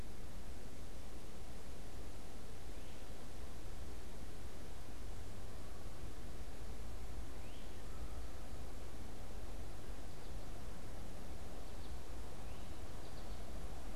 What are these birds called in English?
Great Crested Flycatcher, American Goldfinch